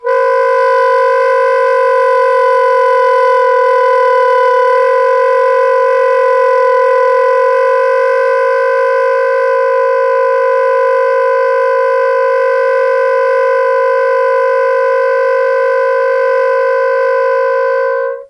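0.0s A soprano saxophone produces a continuous, eerie multiphonic sound with dissonant tones in a rich acoustic space. 18.3s

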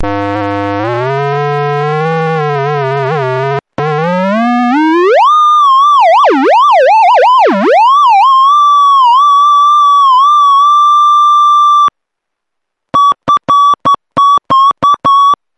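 0.0s An electronic sound plays loudly at a steady pitch. 3.7s
3.8s An electronic sound increases in volume. 5.4s
5.4s An electronic sound changes constantly in volume and pitch. 8.4s
8.4s An electronic sound resembling a person screaming with a steady pitch. 11.9s
8.4s An electronic sound resembling a steady scream. 11.9s
12.8s A beeping sound with alternating beep lengths at a consistent volume. 15.5s

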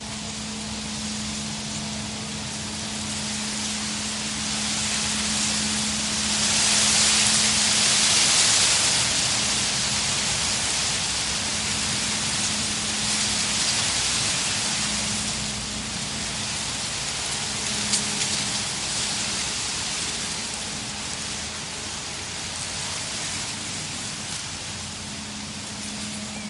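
0.0s A sharp sizzling noise with irregular loudness and an irregular pattern. 26.5s

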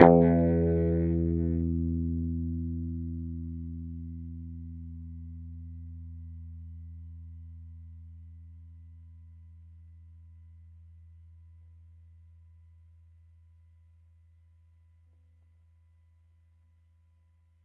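0.0s A single guitar note is played and gradually fades out. 17.6s

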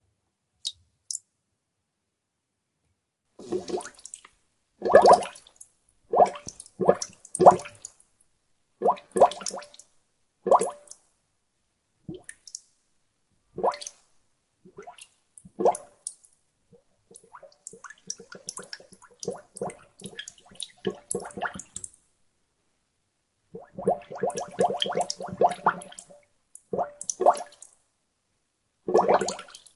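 0.5s Two small water drops splash. 1.4s
3.3s Bubbles of different sizes surface and splash with varying pitches. 11.1s
12.0s Bubble surfacing and splashing. 12.7s
13.5s Bubble emerging and splashing. 14.1s
14.7s Bubbles emerging and splashing. 16.3s
17.1s Small bubbles emerge and splash in quick succession. 22.0s
23.5s Several bubbles emerge and splash in short succession. 26.2s
26.5s Bubbles emerge and splash twice. 27.7s
28.8s Bubbles emerging and splashing simultaneously. 29.8s

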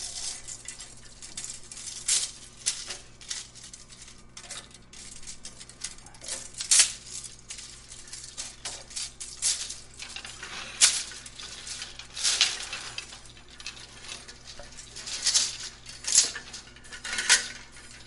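0.0s Loud repetitive rustling. 18.1s
0.0s Quiet noise in the background. 18.1s

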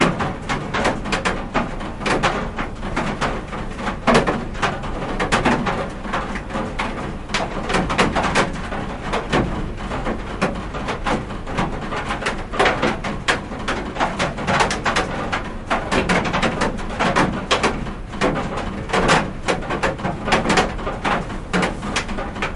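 0.0s Raindrops continuously falling on a flat metal surface. 22.5s

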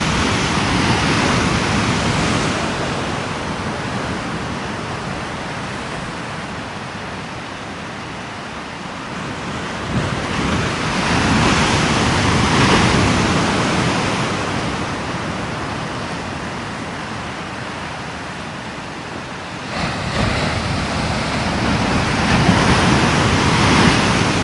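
0.0s Waves hitting the ocean shore fade away. 6.8s
0.0s Ocean waves. 24.4s
9.6s Waves hitting the ocean shore fade away. 16.4s
19.6s Waves hitting the ocean shore fade away. 24.4s

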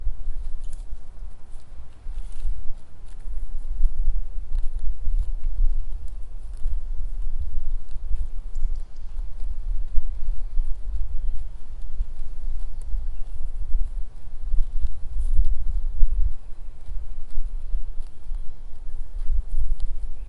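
2.1s Sheep are grazing. 3.0s
3.7s Sheep are grazing. 6.1s
8.7s A bird chirps. 9.6s
12.8s A bird chirps. 13.9s
14.5s A bird chirps. 15.3s

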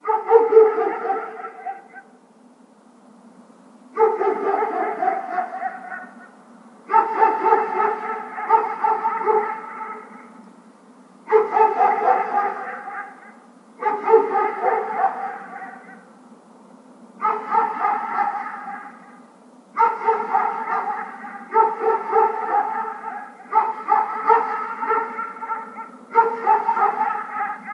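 0.0s A dog barks loudly and repeatedly in the distance with an angry, echoing tone. 2.1s
3.9s A dog barks loudly and repeatedly in the distance with an angry, echoing tone. 6.2s
6.8s A dog barks loudly and repeatedly in the distance with an angry, echoing tone. 10.2s
11.2s A dog barks loudly and repeatedly in the distance with an angry, echoing tone. 16.0s
17.2s A dog barks loudly and repeatedly in the distance with an angry, echoing tone. 27.7s

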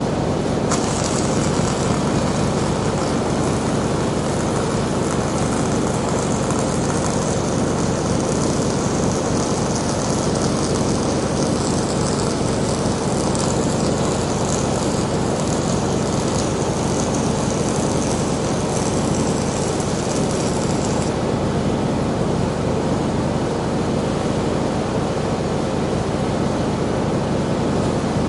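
0.0s Sparks from welding can be heard. 28.3s

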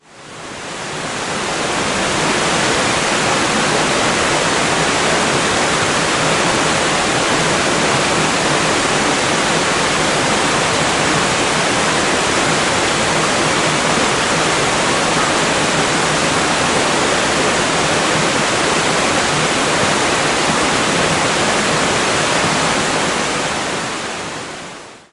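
0.0s Loud water burbling in a nearby river fading in and out. 25.1s

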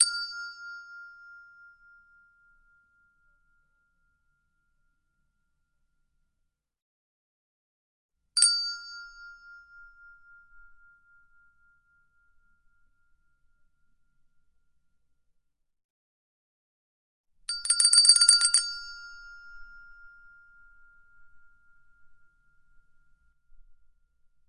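0.0s A single, clear, and bright click of a chromatic handbell producing a resonant, pure sound. 4.3s
8.3s A pair of clear, bright clicks from chromatic handbells producing resonant, pure sounds. 12.6s
17.4s Several handbells ring rapidly in quick succession, their bright tones fading out swiftly. 22.9s

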